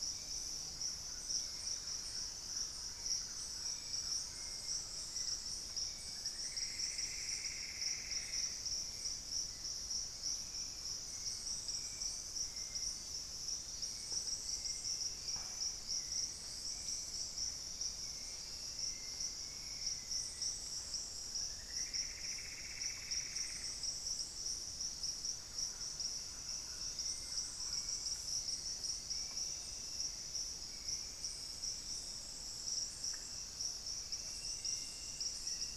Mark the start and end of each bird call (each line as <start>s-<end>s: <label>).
0.0s-31.9s: Hauxwell's Thrush (Turdus hauxwelli)
0.3s-5.5s: Thrush-like Wren (Campylorhynchus turdinus)
5.6s-9.0s: Plumbeous Antbird (Myrmelastes hyperythrus)
9.7s-13.6s: Thrush-like Wren (Campylorhynchus turdinus)
15.3s-17.3s: Plumbeous Pigeon (Patagioenas plumbea)
18.8s-20.5s: Black-faced Antthrush (Formicarius analis)
20.8s-24.2s: Plumbeous Antbird (Myrmelastes hyperythrus)
25.3s-28.2s: Thrush-like Wren (Campylorhynchus turdinus)